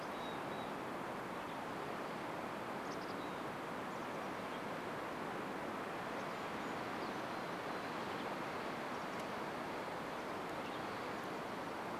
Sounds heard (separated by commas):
Golden-crowned Kinglet call, Western Tanager call, Mountain Chickadee call, Chestnut-backed Chickadee call